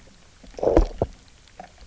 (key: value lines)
label: biophony, low growl
recorder: SoundTrap 300